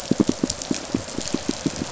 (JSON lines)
{"label": "biophony, pulse", "recorder": "SoundTrap 500"}